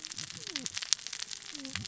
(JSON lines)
{"label": "biophony, cascading saw", "recorder": "SoundTrap 600 or HydroMoth"}